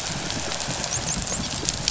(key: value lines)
label: biophony, dolphin
recorder: SoundTrap 500